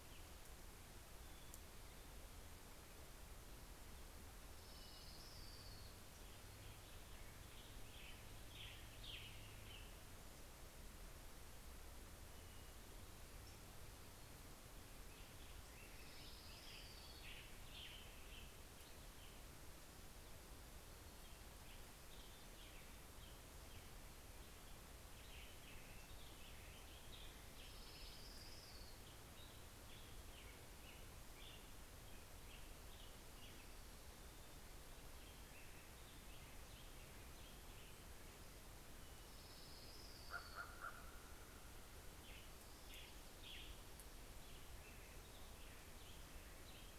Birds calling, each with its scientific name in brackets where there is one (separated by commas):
Western Tanager (Piranga ludoviciana), Orange-crowned Warbler (Leiothlypis celata), Common Raven (Corvus corax), American Robin (Turdus migratorius)